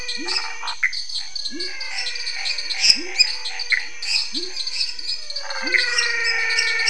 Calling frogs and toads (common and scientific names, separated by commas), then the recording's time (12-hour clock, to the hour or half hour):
waxy monkey tree frog (Phyllomedusa sauvagii), Chaco tree frog (Boana raniceps), lesser tree frog (Dendropsophus minutus), dwarf tree frog (Dendropsophus nanus), pepper frog (Leptodactylus labyrinthicus), menwig frog (Physalaemus albonotatus), Scinax fuscovarius, Pithecopus azureus
8:30pm